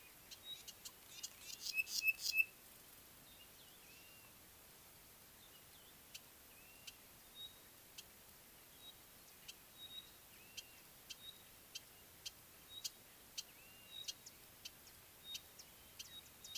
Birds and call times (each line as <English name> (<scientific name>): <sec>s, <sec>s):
Pygmy Batis (Batis perkeo): 1.8s, 9.9s, 13.4s